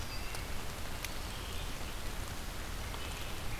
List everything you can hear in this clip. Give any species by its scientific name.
Setophaga coronata, Turdus migratorius, Vireo olivaceus